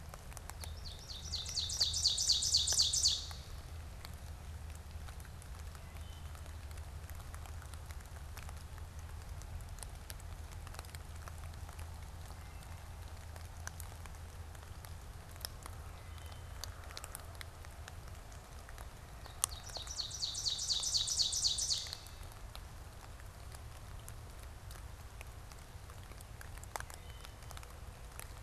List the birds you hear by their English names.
Ovenbird, Wood Thrush